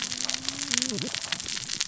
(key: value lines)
label: biophony, cascading saw
recorder: SoundTrap 600 or HydroMoth